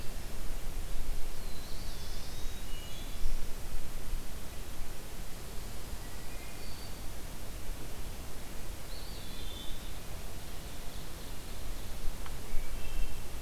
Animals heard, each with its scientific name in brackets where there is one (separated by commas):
Eastern Wood-Pewee (Contopus virens), Ovenbird (Seiurus aurocapilla), Black-throated Blue Warbler (Setophaga caerulescens), Wood Thrush (Hylocichla mustelina)